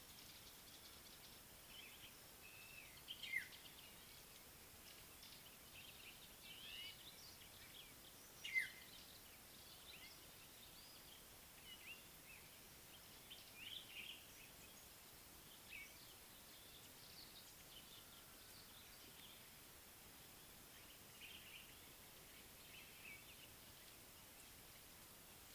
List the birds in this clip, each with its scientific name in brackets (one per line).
African Black-headed Oriole (Oriolus larvatus)
Violet-backed Starling (Cinnyricinclus leucogaster)